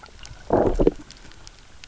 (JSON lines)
{"label": "biophony, low growl", "recorder": "SoundTrap 300"}